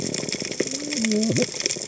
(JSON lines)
{"label": "biophony, cascading saw", "recorder": "HydroMoth"}